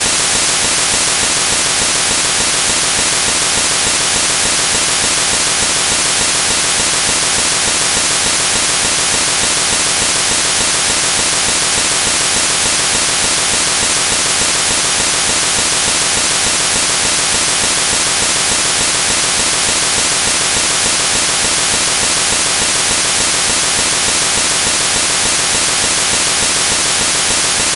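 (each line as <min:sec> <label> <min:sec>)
0:00.0 A repeated high-pitched synthesized noise. 0:27.8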